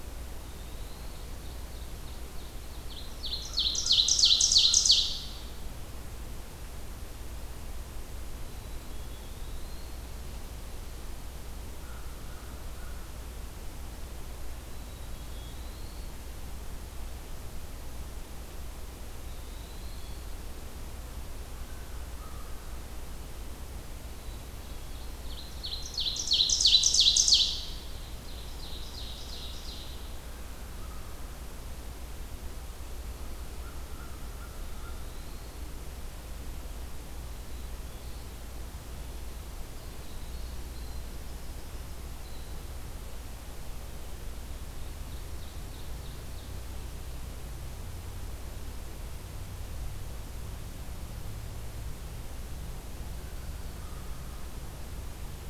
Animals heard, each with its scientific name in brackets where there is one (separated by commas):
Ovenbird (Seiurus aurocapilla), Black-throated Green Warbler (Setophaga virens), Black-capped Chickadee (Poecile atricapillus), American Crow (Corvus brachyrhynchos), Winter Wren (Troglodytes hiemalis), Eastern Wood-Pewee (Contopus virens)